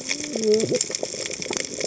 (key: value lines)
label: biophony, cascading saw
recorder: HydroMoth